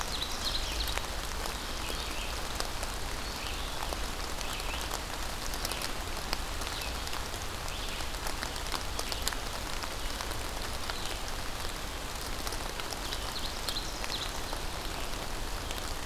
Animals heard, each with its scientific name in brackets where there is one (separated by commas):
Ovenbird (Seiurus aurocapilla), Red-eyed Vireo (Vireo olivaceus)